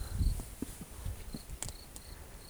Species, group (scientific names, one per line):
Gryllus campestris
Orthoptera